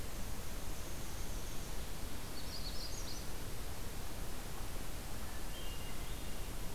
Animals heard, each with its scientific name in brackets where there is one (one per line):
Hermit Thrush (Catharus guttatus)
Dark-eyed Junco (Junco hyemalis)
Magnolia Warbler (Setophaga magnolia)